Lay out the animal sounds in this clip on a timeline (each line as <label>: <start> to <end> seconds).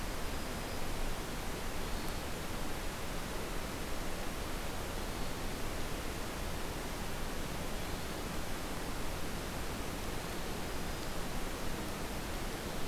Black-throated Green Warbler (Setophaga virens): 0.0 to 1.1 seconds
Hermit Thrush (Catharus guttatus): 1.7 to 2.3 seconds
Hermit Thrush (Catharus guttatus): 4.8 to 5.4 seconds
Hermit Thrush (Catharus guttatus): 9.9 to 10.5 seconds
Black-throated Green Warbler (Setophaga virens): 10.4 to 11.5 seconds